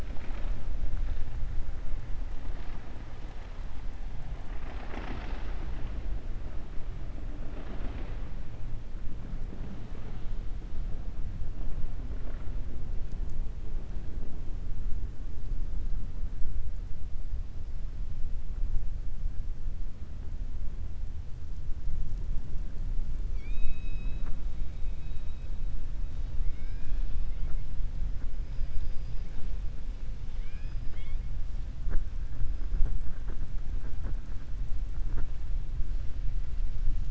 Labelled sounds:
23.2	24.4	killer whale, southern resident, 0.41 to 7.4 kHz
26.4	27.2	killer whale, southern resident, 1.4 to 4.3 kHz
28.4	29.3	killer whale, southern resident, 4.0 to 5.6 kHz
30.2	31.2	killer whale, southern resident, 1.5 to 5.0 kHz

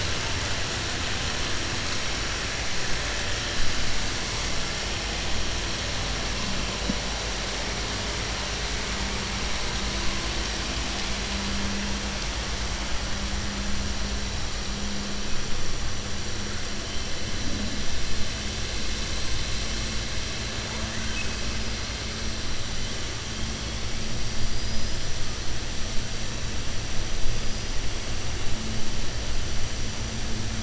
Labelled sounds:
20.6	21.3	killer whale, 0.50 to 3.2 kHz
24.4	25.0	killer whale, 4.8 to 5.2 kHz

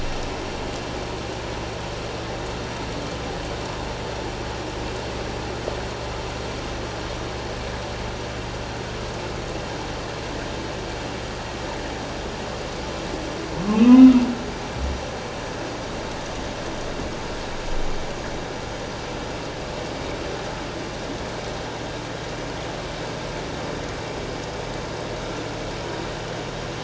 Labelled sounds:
13.7	14.1	humpback whale, 2.4 to 2.9 kHz

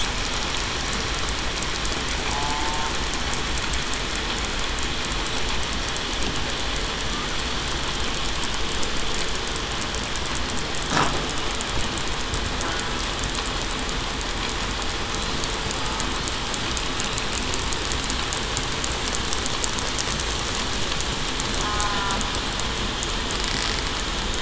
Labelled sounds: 2.3	2.7	killer whale, southern resident, 0.82 to 0.91 kHz
21.6	22.2	killer whale, southern resident, 0.96 to 1.1 kHz

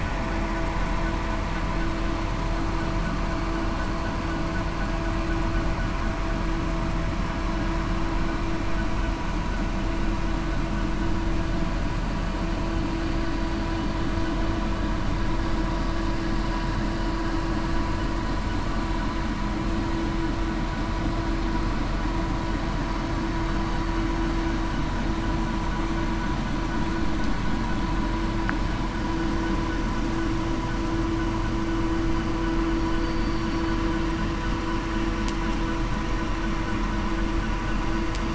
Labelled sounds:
33.0	33.6	killer whale, southern resident, 4.5 to 5.7 kHz

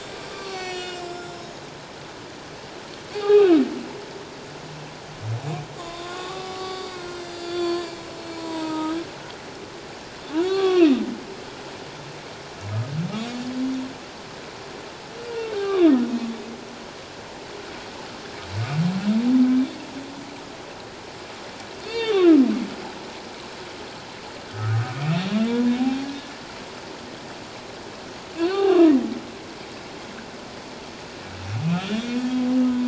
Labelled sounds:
0.3	1.6	humpback whale, 1.1 to 7.8 kHz
3.1	3.6	humpback whale, 0.78 to 3.8 kHz
5.8	9.0	humpback whale, 0.78 to 7.9 kHz
10.4	11.0	humpback whale, 0.78 to 3.4 kHz
15.2	16.0	humpback whale, 1.0 to 3.8 kHz
21.8	22.3	humpback whale, 1.7 to 4.7 kHz
24.5	24.9	humpback whale, 1.2 to 1.6 kHz
28.4	29.1	humpback whale, 0.78 to 2.9 kHz
31.6	32.8	humpback whale, 0.97 to 3.7 kHz

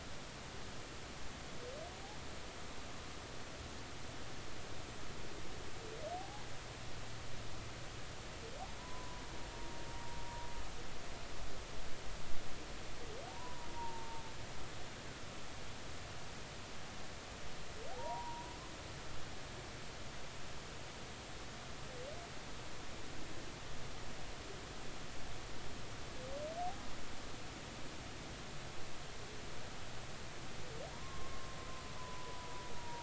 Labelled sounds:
6.2	6.5	humpback whale, 0.80 to 1.0 kHz
8.8	9.2	humpback whale, 0.93 to 1.1 kHz
13.3	14.2	humpback whale, 0.80 to 1.1 kHz
17.9	18.5	humpback whale, 0.80 to 1.0 kHz
30.9	33.0	humpback whale, 0.90 to 1.1 kHz

